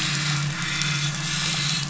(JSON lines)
{"label": "anthrophony, boat engine", "recorder": "SoundTrap 500"}